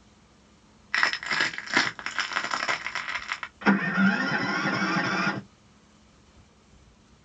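First, at 0.92 seconds, crushing is heard. After that, at 3.6 seconds, an engine starts.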